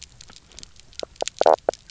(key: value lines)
label: biophony, knock croak
recorder: SoundTrap 300